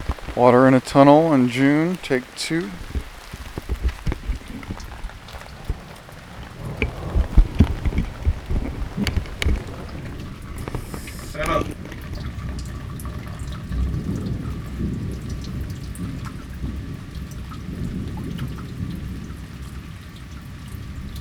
Is a man speaking?
yes